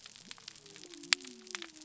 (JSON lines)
{"label": "biophony", "recorder": "SoundTrap 300"}